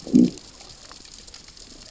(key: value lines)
label: biophony, growl
recorder: SoundTrap 600 or HydroMoth